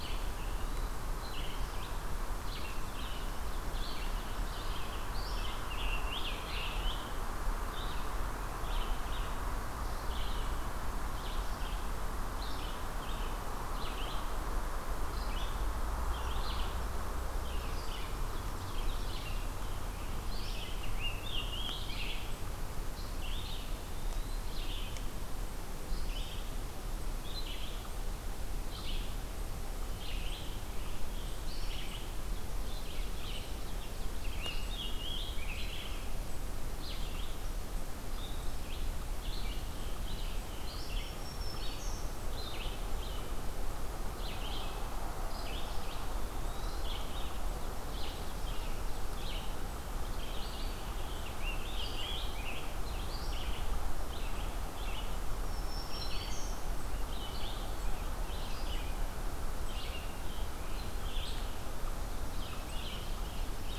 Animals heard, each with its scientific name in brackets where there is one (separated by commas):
Eastern Wood-Pewee (Contopus virens), Red-eyed Vireo (Vireo olivaceus), Hermit Thrush (Catharus guttatus), Scarlet Tanager (Piranga olivacea), Black-throated Green Warbler (Setophaga virens), Ovenbird (Seiurus aurocapilla)